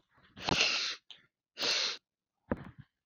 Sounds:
Sniff